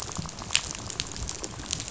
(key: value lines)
label: biophony, rattle
recorder: SoundTrap 500